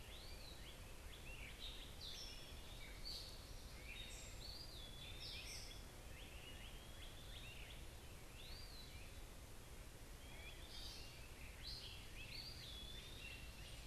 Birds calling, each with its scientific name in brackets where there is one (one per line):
Gray Catbird (Dumetella carolinensis)
Great Crested Flycatcher (Myiarchus crinitus)
Eastern Wood-Pewee (Contopus virens)